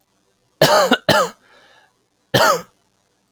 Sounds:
Cough